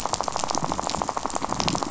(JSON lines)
{"label": "biophony, rattle", "recorder": "SoundTrap 500"}